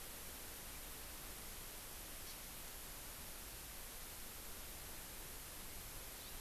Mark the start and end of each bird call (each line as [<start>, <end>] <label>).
[2.20, 2.40] Hawaii Amakihi (Chlorodrepanis virens)